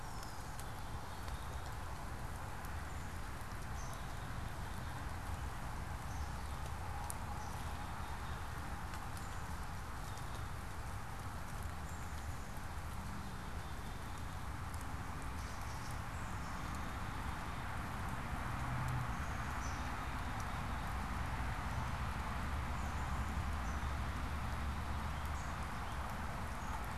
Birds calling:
Gray Catbird (Dumetella carolinensis)
Black-capped Chickadee (Poecile atricapillus)

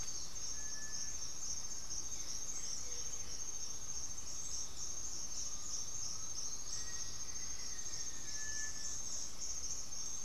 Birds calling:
Blue-gray Saltator (Saltator coerulescens)
Black-faced Antthrush (Formicarius analis)
Black-throated Antbird (Myrmophylax atrothorax)
Gray-fronted Dove (Leptotila rufaxilla)
Cinereous Tinamou (Crypturellus cinereus)
Undulated Tinamou (Crypturellus undulatus)

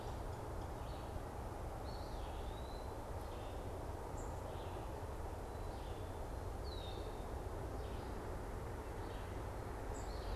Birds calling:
unidentified bird
Red-eyed Vireo (Vireo olivaceus)
Eastern Wood-Pewee (Contopus virens)
Red-winged Blackbird (Agelaius phoeniceus)

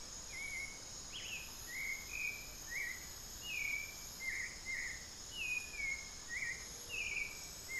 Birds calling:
Cinereous Tinamou (Crypturellus cinereus)
Hauxwell's Thrush (Turdus hauxwelli)

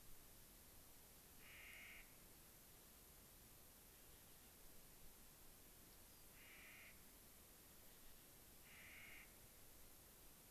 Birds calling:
Rock Wren (Salpinctes obsoletus)
Clark's Nutcracker (Nucifraga columbiana)

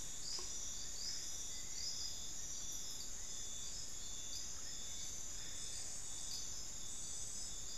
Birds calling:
Hauxwell's Thrush (Turdus hauxwelli)

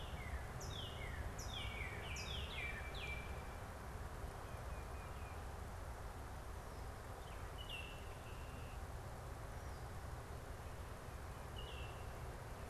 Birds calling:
Northern Cardinal (Cardinalis cardinalis)
Baltimore Oriole (Icterus galbula)
Tufted Titmouse (Baeolophus bicolor)

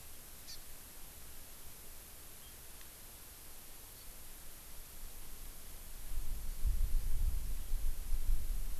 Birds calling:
Hawaii Amakihi (Chlorodrepanis virens)

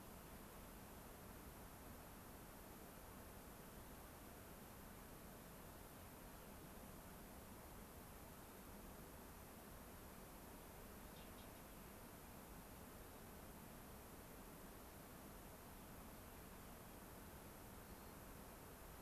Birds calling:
White-crowned Sparrow (Zonotrichia leucophrys)

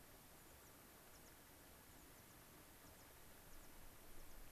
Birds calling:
American Pipit (Anthus rubescens)

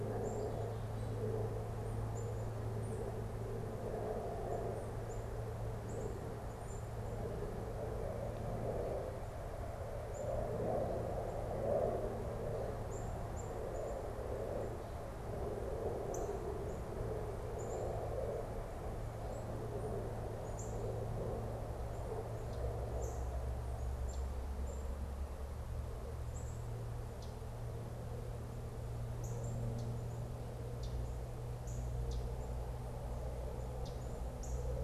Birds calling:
Common Yellowthroat (Geothlypis trichas)
Black-capped Chickadee (Poecile atricapillus)
Northern Cardinal (Cardinalis cardinalis)

